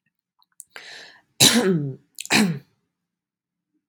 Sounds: Throat clearing